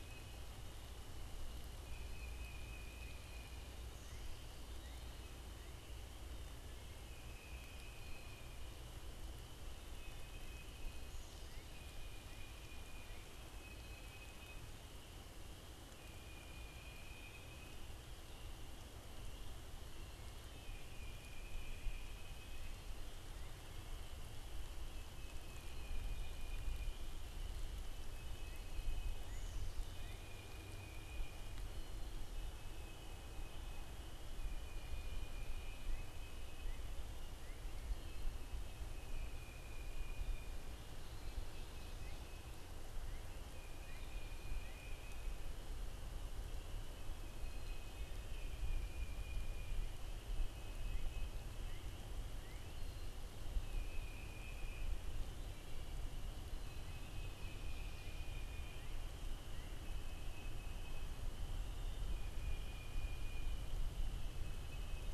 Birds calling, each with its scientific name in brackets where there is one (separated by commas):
Northern Cardinal (Cardinalis cardinalis), Tufted Titmouse (Baeolophus bicolor), Black-capped Chickadee (Poecile atricapillus)